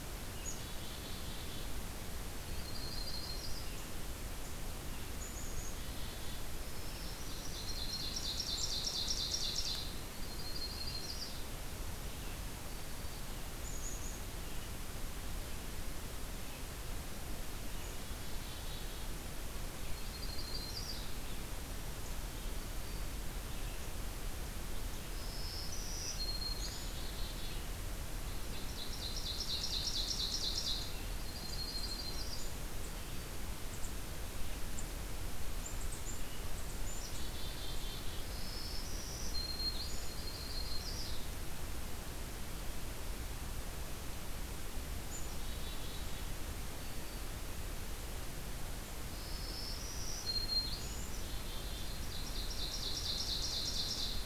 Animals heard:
Yellow-rumped Warbler (Setophaga coronata), Black-capped Chickadee (Poecile atricapillus), Black-throated Green Warbler (Setophaga virens), Ovenbird (Seiurus aurocapilla)

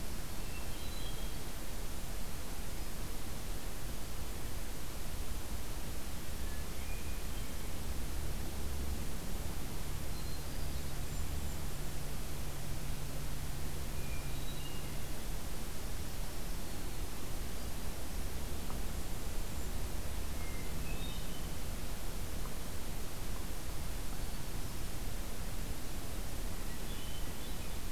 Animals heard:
Hermit Thrush (Catharus guttatus), Golden-crowned Kinglet (Regulus satrapa)

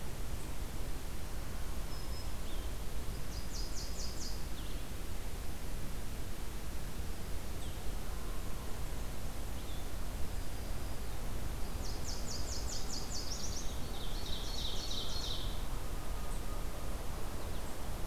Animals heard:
Ovenbird (Seiurus aurocapilla), Black-throated Green Warbler (Setophaga virens), Nashville Warbler (Leiothlypis ruficapilla), Blue-headed Vireo (Vireo solitarius)

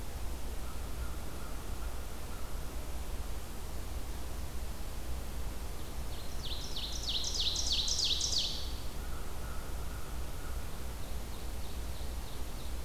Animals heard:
Ovenbird (Seiurus aurocapilla), American Crow (Corvus brachyrhynchos)

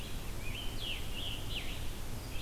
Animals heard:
Red-eyed Vireo (Vireo olivaceus), Scarlet Tanager (Piranga olivacea)

